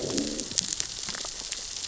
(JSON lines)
{"label": "biophony, growl", "recorder": "SoundTrap 600 or HydroMoth"}